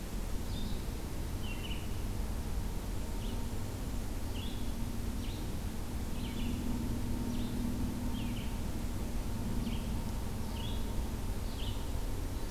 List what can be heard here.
Red-eyed Vireo